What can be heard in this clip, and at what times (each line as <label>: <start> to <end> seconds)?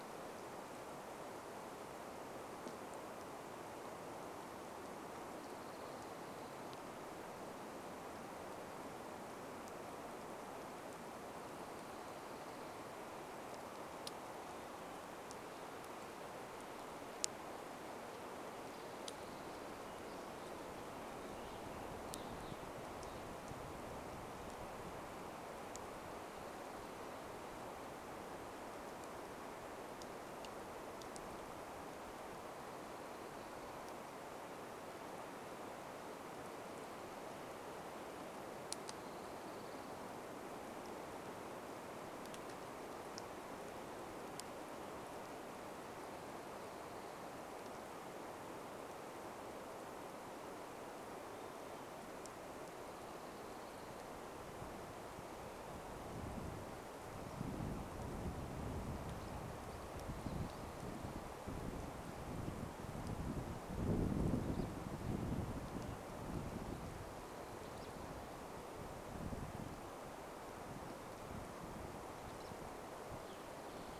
Orange-crowned Warbler song: 4 to 8 seconds
Orange-crowned Warbler song: 12 to 14 seconds
Orange-crowned Warbler song: 18 to 20 seconds
unidentified sound: 20 to 24 seconds
Orange-crowned Warbler song: 38 to 40 seconds
Orange-crowned Warbler song: 46 to 48 seconds
Black-capped Chickadee song: 50 to 52 seconds
Orange-crowned Warbler song: 52 to 54 seconds
Pine Siskin call: 58 to 62 seconds
Pine Siskin call: 64 to 68 seconds
Pine Siskin call: 70 to 74 seconds
unidentified sound: 72 to 74 seconds